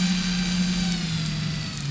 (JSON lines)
{"label": "anthrophony, boat engine", "recorder": "SoundTrap 500"}